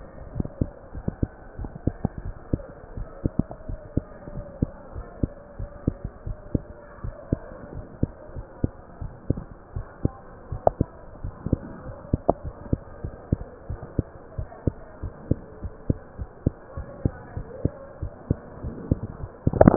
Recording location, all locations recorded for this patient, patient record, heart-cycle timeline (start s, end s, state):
mitral valve (MV)
aortic valve (AV)+pulmonary valve (PV)+tricuspid valve (TV)+mitral valve (MV)
#Age: Child
#Sex: Male
#Height: 131.0 cm
#Weight: 25.9 kg
#Pregnancy status: False
#Murmur: Absent
#Murmur locations: nan
#Most audible location: nan
#Systolic murmur timing: nan
#Systolic murmur shape: nan
#Systolic murmur grading: nan
#Systolic murmur pitch: nan
#Systolic murmur quality: nan
#Diastolic murmur timing: nan
#Diastolic murmur shape: nan
#Diastolic murmur grading: nan
#Diastolic murmur pitch: nan
#Diastolic murmur quality: nan
#Outcome: Normal
#Campaign: 2015 screening campaign
0.00	3.68	unannotated
3.68	3.80	S1
3.80	3.92	systole
3.92	4.06	S2
4.06	4.32	diastole
4.32	4.46	S1
4.46	4.58	systole
4.58	4.70	S2
4.70	4.94	diastole
4.94	5.04	S1
5.04	5.18	systole
5.18	5.30	S2
5.30	5.58	diastole
5.58	5.70	S1
5.70	5.84	systole
5.84	5.98	S2
5.98	6.23	diastole
6.23	6.34	S1
6.34	6.52	systole
6.52	6.63	S2
6.63	7.02	diastole
7.02	7.16	S1
7.16	7.28	systole
7.28	7.42	S2
7.42	7.71	diastole
7.71	7.86	S1
7.86	7.98	systole
7.98	8.12	S2
8.12	8.35	diastole
8.35	8.45	S1
8.45	8.60	systole
8.60	8.73	S2
8.73	9.01	diastole
9.01	9.11	S1
9.11	9.26	systole
9.26	9.36	S2
9.36	9.74	diastole
9.74	9.86	S1
9.86	10.00	systole
10.00	10.16	S2
10.16	10.50	diastole
10.50	10.61	S1
10.61	10.75	systole
10.75	10.88	S2
10.88	11.22	diastole
11.22	11.33	S1
11.33	11.48	systole
11.48	11.60	S2
11.60	11.84	diastole
11.84	11.96	S1
11.96	12.12	systole
12.12	12.22	S2
12.22	12.44	diastole
12.44	12.54	S1
12.54	12.66	systole
12.66	12.80	S2
12.80	13.02	diastole
13.02	13.14	S1
13.14	13.28	systole
13.28	13.40	S2
13.40	13.68	diastole
13.68	13.80	S1
13.80	13.94	systole
13.94	14.08	S2
14.08	14.36	diastole
14.36	14.50	S1
14.50	14.66	systole
14.66	14.76	S2
14.76	15.02	diastole
15.02	15.14	S1
15.14	15.28	systole
15.28	15.40	S2
15.40	15.62	diastole
15.62	15.73	S1
15.73	15.86	systole
15.86	15.97	S2
15.97	16.17	diastole
16.17	16.28	S1
16.28	16.42	systole
16.42	16.54	S2
16.54	16.75	diastole
16.75	16.87	S1
16.87	17.00	systole
17.00	17.12	S2
17.12	17.35	diastole
17.35	17.45	S1
17.45	17.60	systole
17.60	17.73	S2
17.73	18.00	diastole
18.00	18.11	S1
18.11	18.26	systole
18.26	18.38	S2
18.38	18.54	diastole
18.54	19.76	unannotated